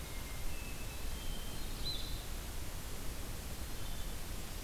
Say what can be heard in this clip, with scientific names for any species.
Vireo solitarius, Catharus guttatus